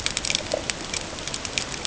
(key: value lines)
label: ambient
recorder: HydroMoth